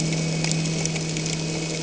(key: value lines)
label: anthrophony, boat engine
recorder: HydroMoth